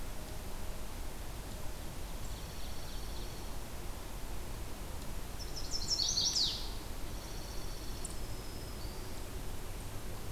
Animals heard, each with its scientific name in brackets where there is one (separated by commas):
Black-throated Green Warbler (Setophaga virens), Dark-eyed Junco (Junco hyemalis), Chestnut-sided Warbler (Setophaga pensylvanica)